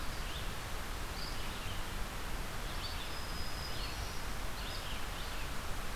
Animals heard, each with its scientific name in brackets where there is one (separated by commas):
Black-throated Green Warbler (Setophaga virens), Red-eyed Vireo (Vireo olivaceus)